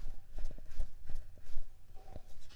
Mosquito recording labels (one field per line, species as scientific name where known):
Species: Mansonia uniformis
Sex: female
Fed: unfed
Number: one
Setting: cup